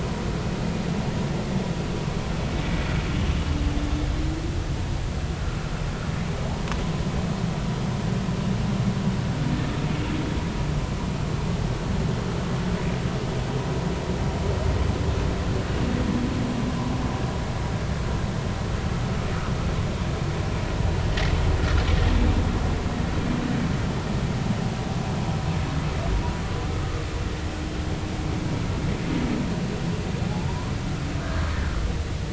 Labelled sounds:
31.2	31.5	humpback whale, 1.4 to 1.7 kHz

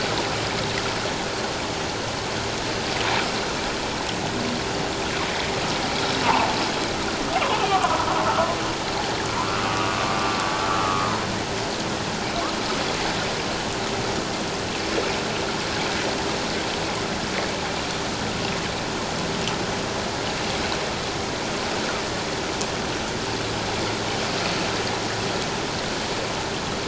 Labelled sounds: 6.2	6.5	humpback whale, 0.78 to 1.2 kHz
7.6	8.0	humpback whale, 0.94 to 1.3 kHz
10.7	11.1	humpback whale, 1.1 to 1.4 kHz

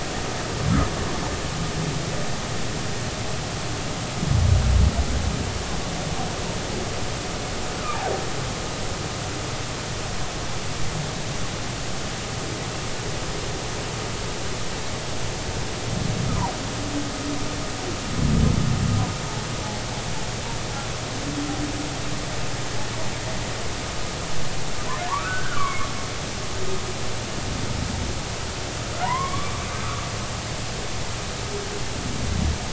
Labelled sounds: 25.1	25.9	humpback whale, 0.86 to 2.4 kHz
29.0	29.6	humpback whale, 0.90 to 2.3 kHz

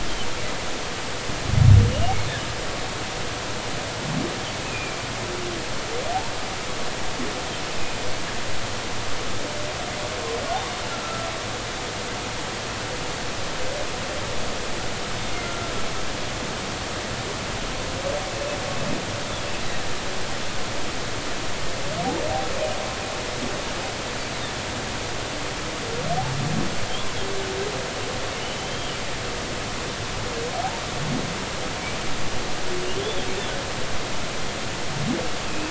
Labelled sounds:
4.7	5.0	humpback whale, 2.3 to 2.7 kHz
10.9	11.3	humpback whale, 1.3 to 1.4 kHz
15.4	15.7	humpback whale, 1.3 to 1.4 kHz
28.4	28.9	humpback whale, 2.8 to 3.3 kHz
32.9	33.2	humpback whale, 3.0 to 3.6 kHz

